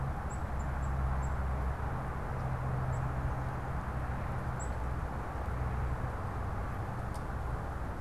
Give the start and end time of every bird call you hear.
0.0s-8.0s: Black-capped Chickadee (Poecile atricapillus)

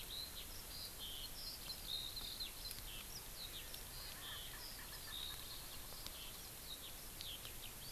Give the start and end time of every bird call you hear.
0.0s-7.9s: Eurasian Skylark (Alauda arvensis)
4.0s-6.2s: Erckel's Francolin (Pternistis erckelii)

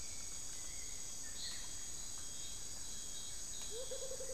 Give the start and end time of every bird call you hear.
0.0s-4.3s: Black-billed Thrush (Turdus ignobilis)
3.3s-4.3s: Amazonian Motmot (Momotus momota)

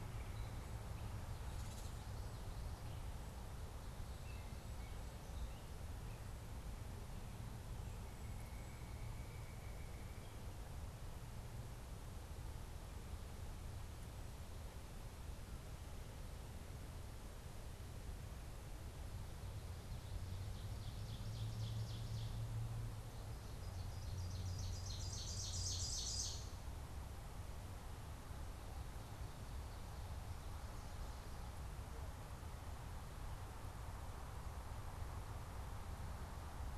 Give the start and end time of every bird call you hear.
8.1s-10.3s: White-breasted Nuthatch (Sitta carolinensis)
20.3s-22.6s: Ovenbird (Seiurus aurocapilla)
23.5s-26.7s: Ovenbird (Seiurus aurocapilla)

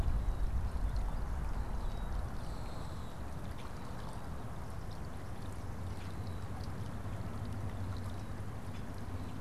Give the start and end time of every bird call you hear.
1.6s-3.2s: Common Grackle (Quiscalus quiscula)

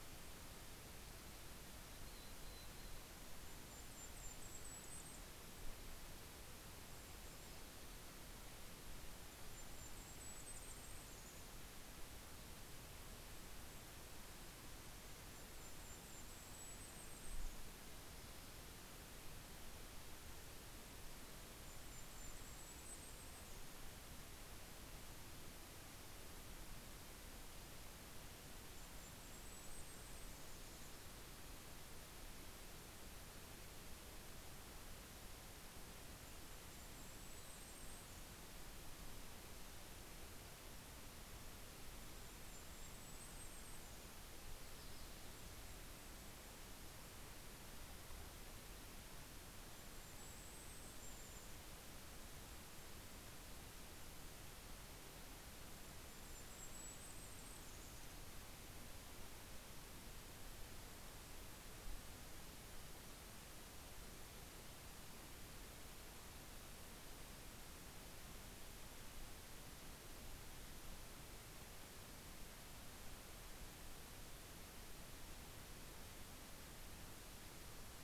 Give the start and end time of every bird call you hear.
1.2s-3.6s: Mountain Chickadee (Poecile gambeli)
2.8s-6.1s: Golden-crowned Kinglet (Regulus satrapa)
8.8s-12.2s: Golden-crowned Kinglet (Regulus satrapa)
14.0s-19.0s: Golden-crowned Kinglet (Regulus satrapa)
20.4s-24.8s: Golden-crowned Kinglet (Regulus satrapa)
28.0s-32.0s: Golden-crowned Kinglet (Regulus satrapa)
35.7s-39.1s: Golden-crowned Kinglet (Regulus satrapa)
41.6s-44.5s: Golden-crowned Kinglet (Regulus satrapa)
48.6s-54.1s: Golden-crowned Kinglet (Regulus satrapa)
54.6s-59.0s: Golden-crowned Kinglet (Regulus satrapa)

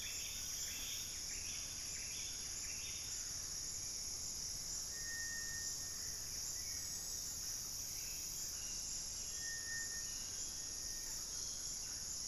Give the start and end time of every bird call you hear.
0.0s-1.8s: Hauxwell's Thrush (Turdus hauxwelli)
0.0s-3.9s: Buff-breasted Wren (Cantorchilus leucotis)
6.3s-12.3s: Hauxwell's Thrush (Turdus hauxwelli)

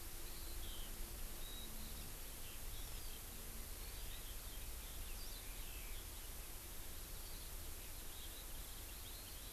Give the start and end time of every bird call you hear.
0.0s-9.5s: Eurasian Skylark (Alauda arvensis)

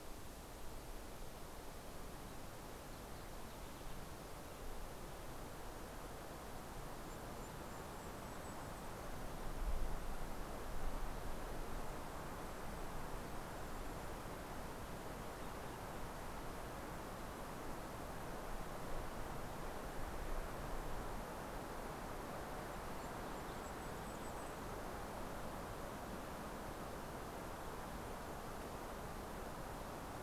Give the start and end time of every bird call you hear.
1.7s-4.7s: American Goldfinch (Spinus tristis)
6.6s-9.6s: Golden-crowned Kinglet (Regulus satrapa)
11.2s-14.6s: Golden-crowned Kinglet (Regulus satrapa)
22.2s-25.0s: Golden-crowned Kinglet (Regulus satrapa)

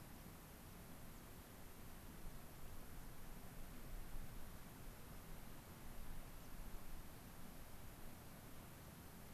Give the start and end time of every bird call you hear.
6.4s-6.5s: White-crowned Sparrow (Zonotrichia leucophrys)

